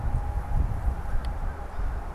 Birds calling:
American Crow (Corvus brachyrhynchos)

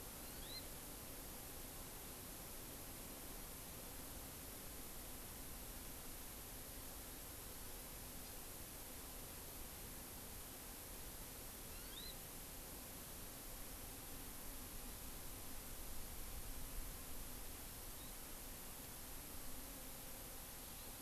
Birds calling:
Hawaii Amakihi (Chlorodrepanis virens)

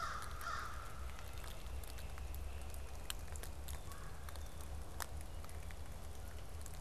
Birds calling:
Red-bellied Woodpecker (Melanerpes carolinus)
Great Crested Flycatcher (Myiarchus crinitus)
American Crow (Corvus brachyrhynchos)

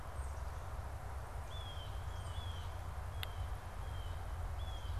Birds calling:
Tufted Titmouse (Baeolophus bicolor)
Blue Jay (Cyanocitta cristata)

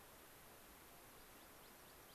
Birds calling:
American Pipit (Anthus rubescens)

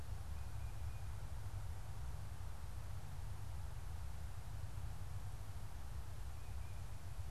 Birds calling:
Tufted Titmouse (Baeolophus bicolor)

